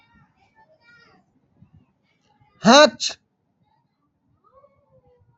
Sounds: Sneeze